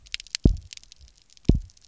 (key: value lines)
label: biophony, double pulse
recorder: SoundTrap 300